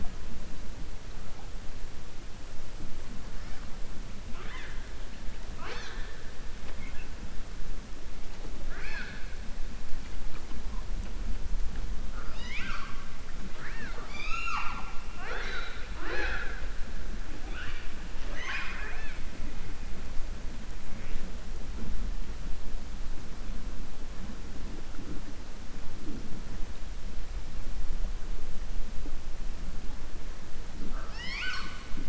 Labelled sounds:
8.6	9.2	killer whale, southern resident, 0.57 to 5.3 kHz
12.2	12.9	killer whale, southern resident, 1.0 to 6.9 kHz
13.5	14.9	killer whale, southern resident, 0.67 to 7.0 kHz
18.2	19.2	killer whale, southern resident, 0.63 to 6.6 kHz

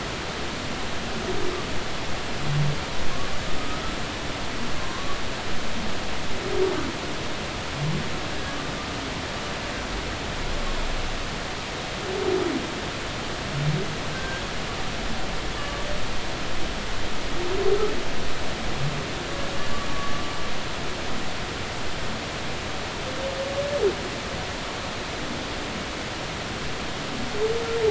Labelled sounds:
3.6	3.8	humpback whale, 1.2 to 1.3 kHz
4.8	5.2	humpback whale, 1.0 to 1.2 kHz
14.1	14.4	humpback whale, 1.5 to 1.7 kHz
15.6	15.9	humpback whale, 1.1 to 1.2 kHz
19.9	20.3	humpback whale, 1.1 to 1.2 kHz

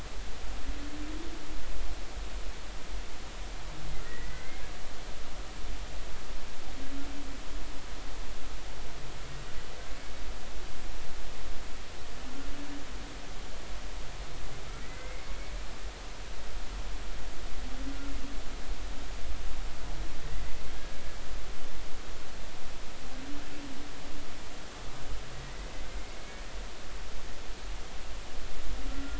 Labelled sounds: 4.0	4.6	humpback whale, 1.5 to 2.2 kHz
14.8	15.3	humpback whale, 1.9 to 2.2 kHz
28.9	29.1	humpback whale, 1.3 to 1.4 kHz

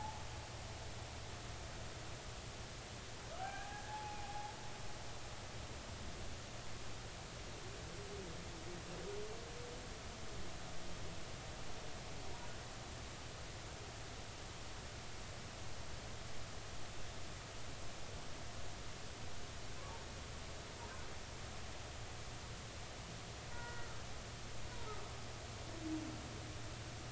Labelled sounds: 3.4	4.5	humpback whale, 0.80 to 2.5 kHz
23.5	24.0	humpback whale, 0.90 to 2.0 kHz
24.7	25.0	humpback whale, 0.86 to 1.0 kHz

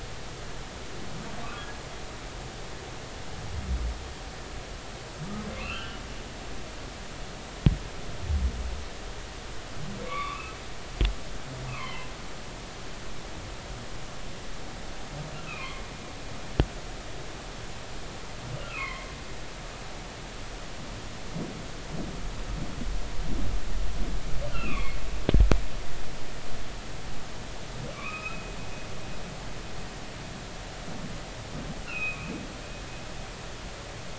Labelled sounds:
5.6	6.0	humpback whale, 1.3 to 3.3 kHz
10.0	10.6	humpback whale, 1.0 to 2.7 kHz
11.7	12.1	humpback whale, 0.83 to 3.2 kHz
15.4	15.8	humpback whale, 0.96 to 2.7 kHz
18.6	19.1	humpback whale, 0.99 to 2.3 kHz
24.5	25.0	humpback whale, 1.0 to 2.9 kHz
27.9	28.5	humpback whale, 0.99 to 2.7 kHz
31.9	32.3	humpback whale, 2.3 to 2.9 kHz

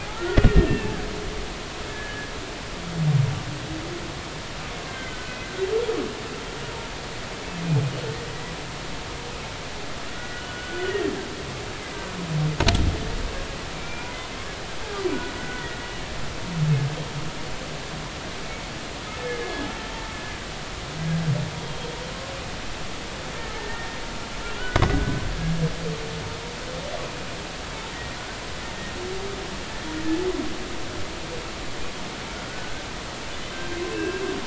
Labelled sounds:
0.1	1.0	humpback whale, 1.2 to 2.8 kHz
1.9	2.3	humpback whale, 1.6 to 1.8 kHz
4.9	5.4	humpback whale, 1.5 to 2.2 kHz
10.1	11.1	humpback whale, 1.4 to 3.0 kHz
13.7	14.1	humpback whale, 1.4 to 2.5 kHz
15.1	15.3	humpback whale, 1.4 to 1.6 kHz
16.4	16.7	humpback whale, 1.4 to 1.5 kHz
19.2	19.7	humpback whale, 1.6 to 2.2 kHz
21.6	21.9	humpback whale, 3.2 to 3.4 kHz
23.4	25.2	humpback whale, 1.4 to 1.9 kHz
27.9	28.2	humpback whale, 1.8 to 2.0 kHz
32.5	32.8	humpback whale, 1.4 to 1.6 kHz
33.9	34.3	humpback whale, 1.5 to 2.7 kHz

